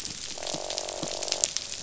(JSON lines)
{"label": "biophony, croak", "recorder": "SoundTrap 500"}